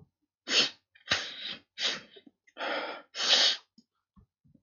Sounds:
Sniff